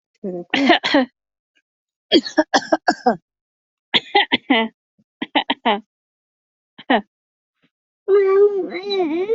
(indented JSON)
{
  "expert_labels": [
    {
      "quality": "good",
      "cough_type": "wet",
      "dyspnea": false,
      "wheezing": false,
      "stridor": false,
      "choking": false,
      "congestion": false,
      "nothing": true,
      "diagnosis": "healthy cough",
      "severity": "pseudocough/healthy cough"
    }
  ]
}